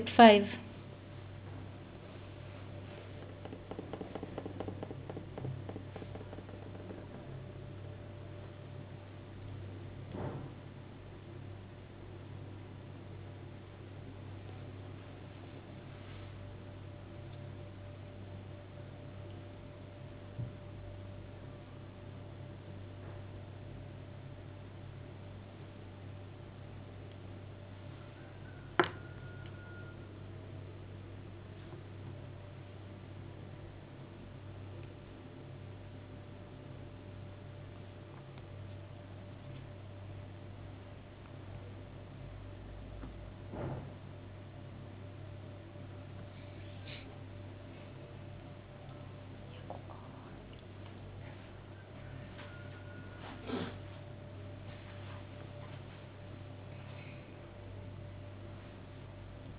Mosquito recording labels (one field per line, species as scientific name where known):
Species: no mosquito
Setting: insect culture